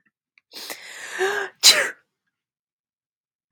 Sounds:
Sneeze